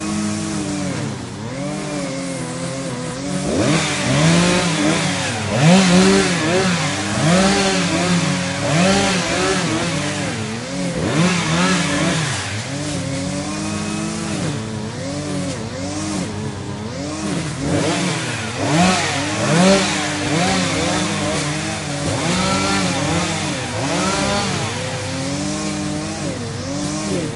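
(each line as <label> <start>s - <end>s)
A lawn trimmer is cutting grass outdoors. 0.0s - 27.4s
A chainsaw cuts wood outdoors. 3.3s - 12.7s
A chainsaw cuts wood outdoors. 17.6s - 24.9s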